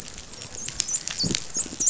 {"label": "biophony", "recorder": "SoundTrap 500"}
{"label": "biophony, dolphin", "recorder": "SoundTrap 500"}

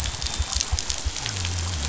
{"label": "biophony", "recorder": "SoundTrap 500"}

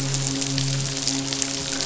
{"label": "biophony, midshipman", "recorder": "SoundTrap 500"}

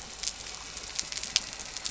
{"label": "anthrophony, boat engine", "recorder": "SoundTrap 300"}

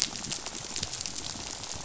{"label": "biophony, rattle", "recorder": "SoundTrap 500"}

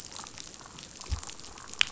{"label": "biophony, damselfish", "recorder": "SoundTrap 500"}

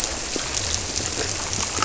{"label": "biophony", "recorder": "SoundTrap 300"}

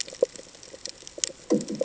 {"label": "anthrophony, bomb", "recorder": "HydroMoth"}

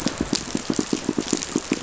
{"label": "biophony, pulse", "recorder": "SoundTrap 500"}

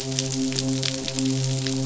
{"label": "biophony, midshipman", "recorder": "SoundTrap 500"}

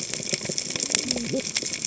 {"label": "biophony, cascading saw", "recorder": "HydroMoth"}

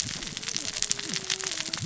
{"label": "biophony, cascading saw", "recorder": "SoundTrap 600 or HydroMoth"}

